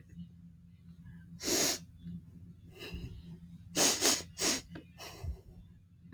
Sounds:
Sniff